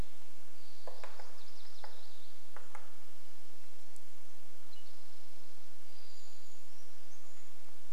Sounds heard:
Brown Creeper song, MacGillivray's Warbler song, Townsend's Solitaire call, unidentified sound, Spotted Towhee song, woodpecker drumming

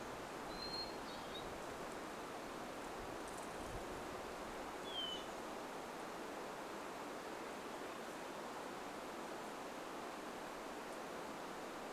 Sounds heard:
Hermit Thrush song, Chestnut-backed Chickadee call, airplane

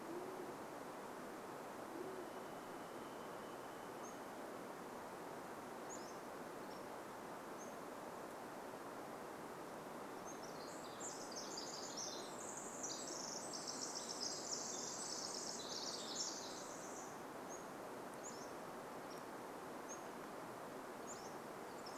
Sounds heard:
Varied Thrush song, Band-tailed Pigeon call, Pacific-slope Flycatcher song, Pacific Wren song

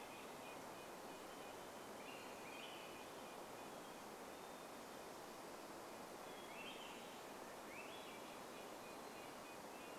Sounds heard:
Red-breasted Nuthatch song, Swainson's Thrush song, Hermit Thrush song

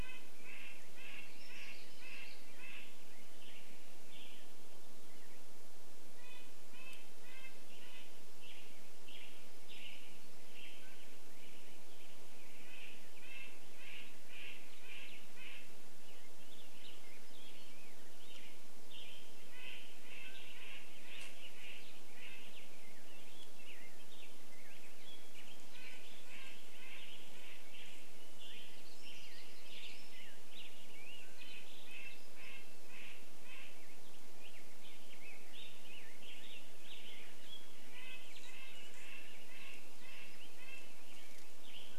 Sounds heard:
Western Tanager song, Red-breasted Nuthatch song, Mountain Quail call, unidentified sound, Black-headed Grosbeak song

